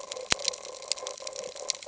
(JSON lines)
{"label": "ambient", "recorder": "HydroMoth"}